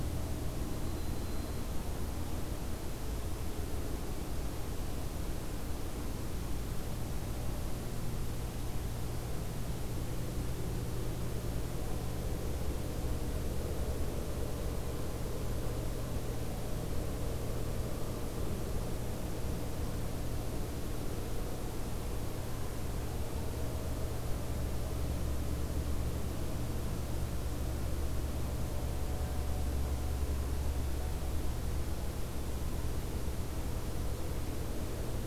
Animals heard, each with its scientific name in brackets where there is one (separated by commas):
White-throated Sparrow (Zonotrichia albicollis)